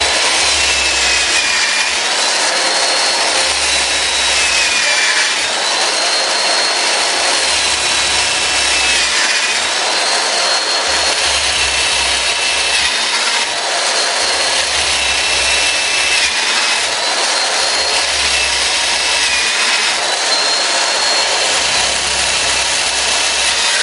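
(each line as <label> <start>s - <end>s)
A high-pitched electric drill whirs sharply, its piercing mechanical buzz fluctuating as it bores into a surface. 0.0s - 23.8s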